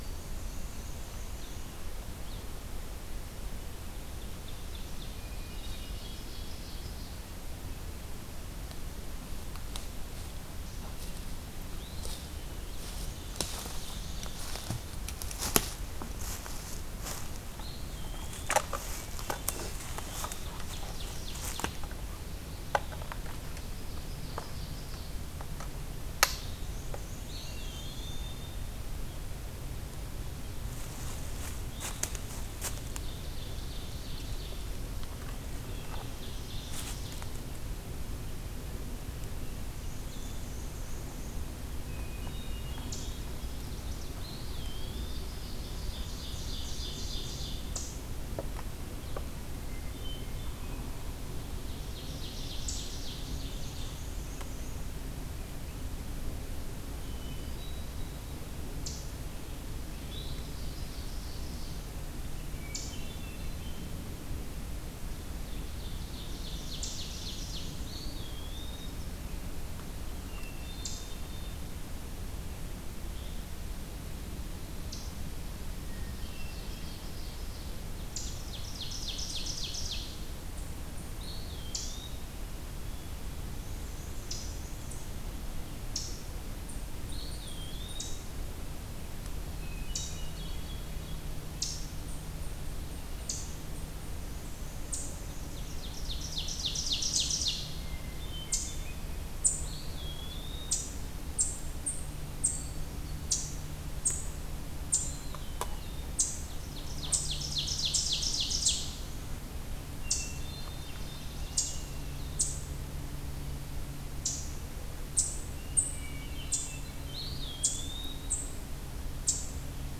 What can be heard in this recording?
Black-and-white Warbler, Ovenbird, Hermit Thrush, Eastern Wood-Pewee, Eastern Chipmunk